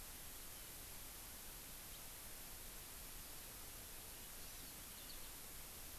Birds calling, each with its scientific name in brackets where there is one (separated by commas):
Hawaii Amakihi (Chlorodrepanis virens), Eurasian Skylark (Alauda arvensis)